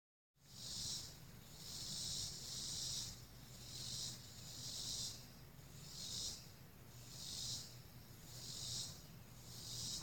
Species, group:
Neotibicen robinsonianus, Cicadidae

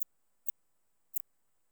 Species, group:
Eupholidoptera smyrnensis, Orthoptera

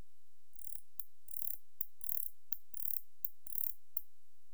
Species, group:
Barbitistes ocskayi, Orthoptera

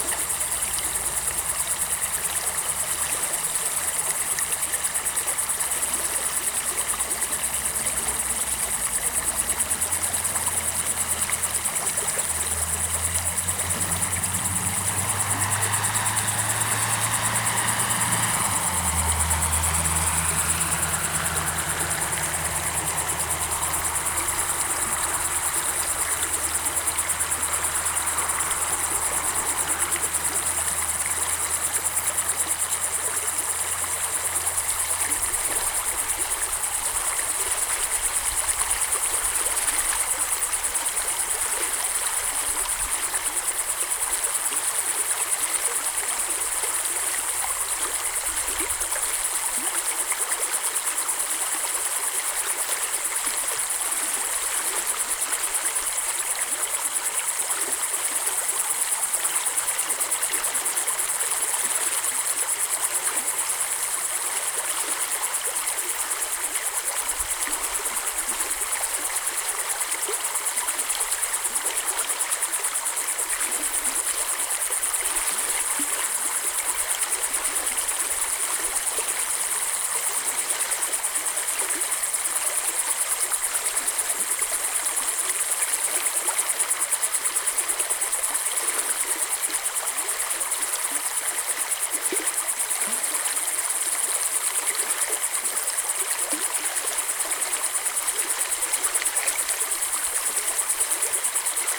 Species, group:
Tettigonia cantans, Orthoptera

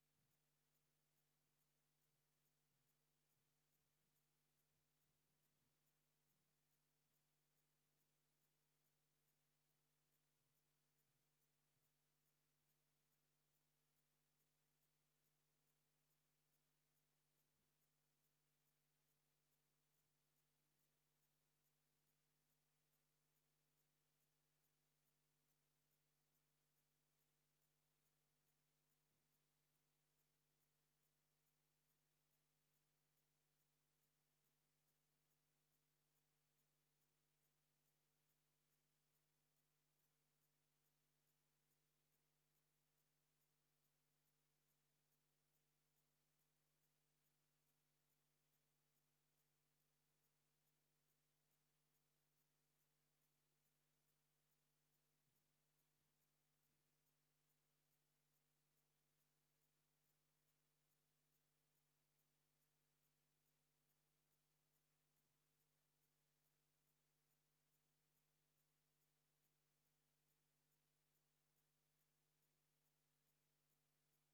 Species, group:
Rhacocleis annulata, Orthoptera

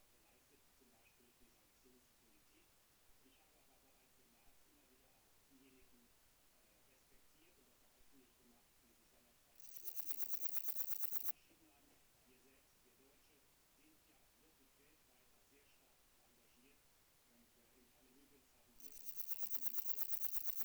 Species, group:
Parnassiana chelmos, Orthoptera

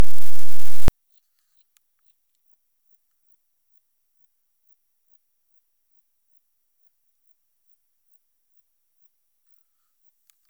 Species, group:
Metrioptera saussuriana, Orthoptera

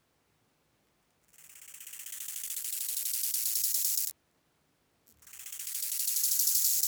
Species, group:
Chorthippus biguttulus, Orthoptera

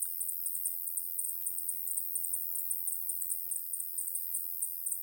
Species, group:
Decticus albifrons, Orthoptera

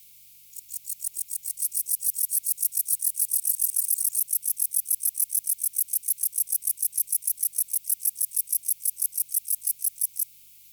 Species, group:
Pholidoptera stankoi, Orthoptera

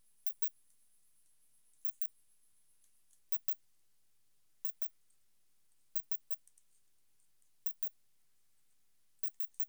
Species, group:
Poecilimon zimmeri, Orthoptera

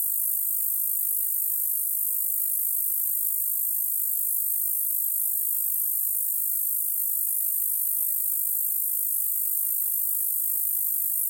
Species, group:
Bradyporus oniscus, Orthoptera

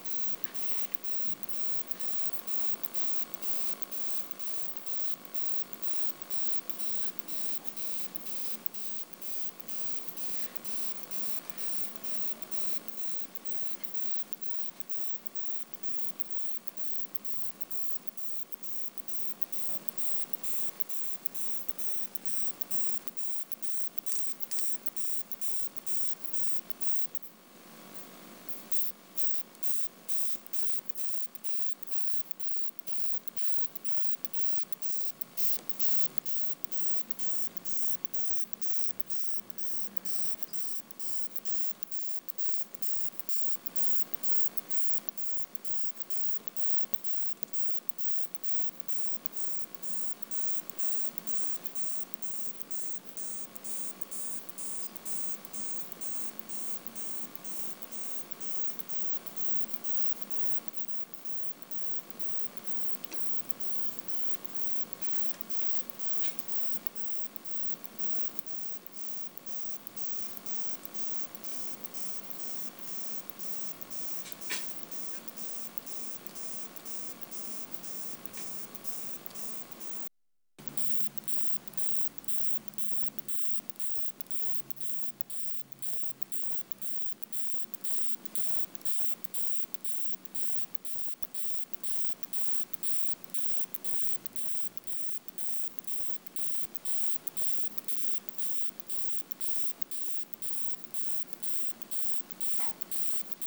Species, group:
Isophya kraussii, Orthoptera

